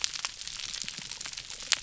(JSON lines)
{"label": "biophony", "recorder": "SoundTrap 300"}